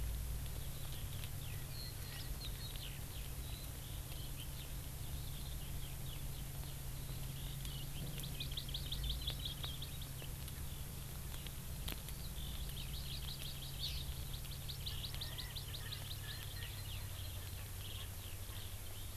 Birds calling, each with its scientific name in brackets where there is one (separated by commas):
Eurasian Skylark (Alauda arvensis), Hawaii Amakihi (Chlorodrepanis virens), Erckel's Francolin (Pternistis erckelii)